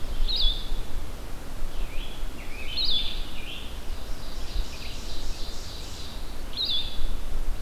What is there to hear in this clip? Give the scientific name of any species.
Vireo solitarius, Piranga olivacea, Seiurus aurocapilla